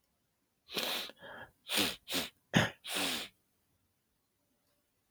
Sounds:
Sniff